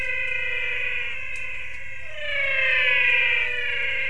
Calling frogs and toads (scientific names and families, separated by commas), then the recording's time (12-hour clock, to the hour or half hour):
Physalaemus albonotatus (Leptodactylidae)
~6pm